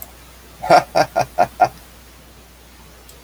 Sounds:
Laughter